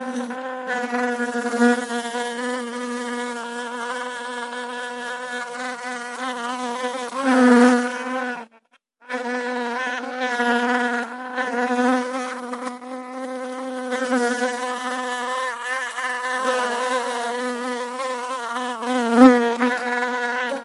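0.0s A single bee buzzing continuously. 20.6s

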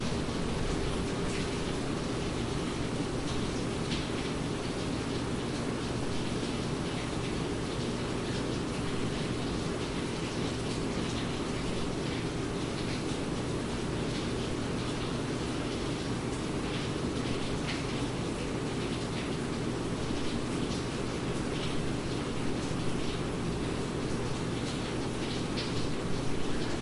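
0.0s A weak, distant sound of water falling. 26.8s

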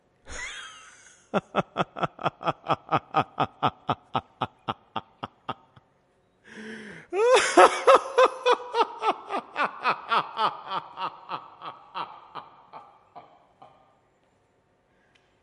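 0.3s A man laughs normally. 5.6s
6.6s A man laughs loudly with an echo toward the end. 13.7s

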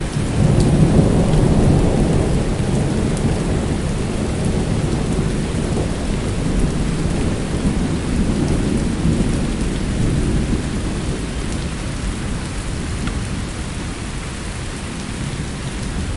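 0.0s Heavy rain pouring down with a loud, constant splashing sound. 16.2s
0.0s Thunder rumbles and gradually fades in intensity. 16.2s

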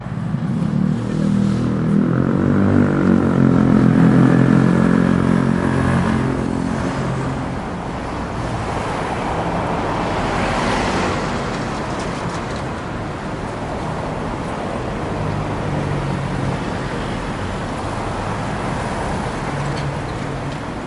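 0.0s A four-stroke motorcycle engine hums steadily while passing by, blending into surrounding vehicle noise. 7.8s
1.0s People talking in a noisy environment, their voices blending into the background. 3.1s
7.6s Vehicles pass by, producing a mix of engine and tire sounds. 20.9s
11.5s A metal cage rattles noisily, likely on the back of a moving vehicle. 13.1s
14.4s A metallic chain rattles. 15.5s
19.3s A metal cage rattles noisily, likely on the back of a moving vehicle. 20.9s

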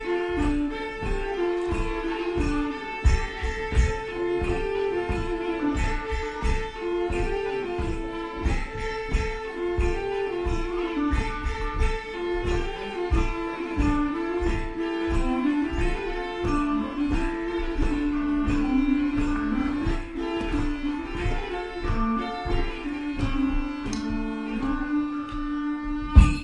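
0.0s Traditional instrumental music with a Viking-era medieval feel. 26.4s

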